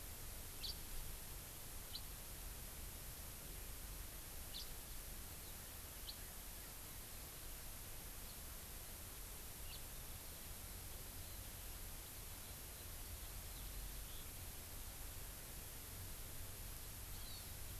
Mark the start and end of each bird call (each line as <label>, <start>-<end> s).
House Finch (Haemorhous mexicanus), 0.6-0.7 s
House Finch (Haemorhous mexicanus), 1.9-2.0 s
House Finch (Haemorhous mexicanus), 4.5-4.6 s
House Finch (Haemorhous mexicanus), 9.6-9.8 s
Hawaii Amakihi (Chlorodrepanis virens), 17.1-17.5 s